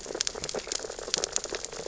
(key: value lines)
label: biophony, sea urchins (Echinidae)
recorder: SoundTrap 600 or HydroMoth